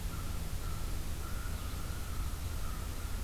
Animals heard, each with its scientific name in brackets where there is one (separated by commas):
American Crow (Corvus brachyrhynchos)